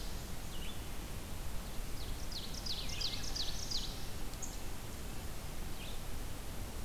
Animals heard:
Ovenbird (Seiurus aurocapilla), Red-eyed Vireo (Vireo olivaceus), Wood Thrush (Hylocichla mustelina)

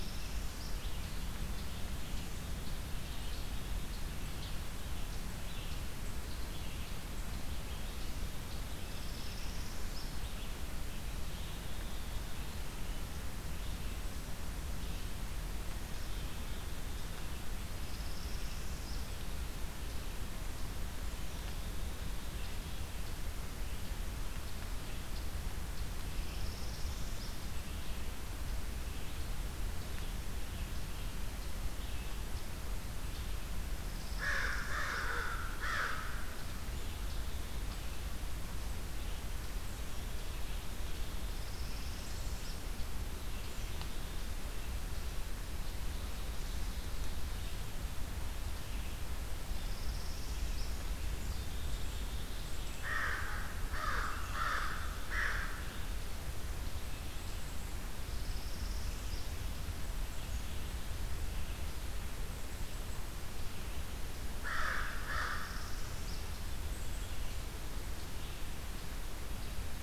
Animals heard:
Red-eyed Vireo (Vireo olivaceus), Ovenbird (Seiurus aurocapilla), Black-capped Chickadee (Poecile atricapillus), Northern Parula (Setophaga americana), American Crow (Corvus brachyrhynchos)

